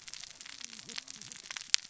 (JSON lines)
{"label": "biophony, cascading saw", "recorder": "SoundTrap 600 or HydroMoth"}